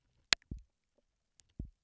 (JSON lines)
{"label": "biophony, double pulse", "recorder": "SoundTrap 300"}